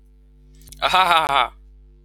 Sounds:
Laughter